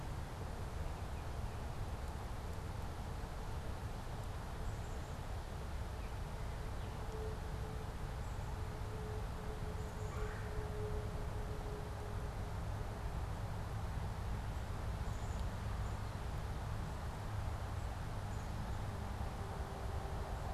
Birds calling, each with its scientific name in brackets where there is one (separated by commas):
Black-capped Chickadee (Poecile atricapillus), Baltimore Oriole (Icterus galbula), Red-bellied Woodpecker (Melanerpes carolinus)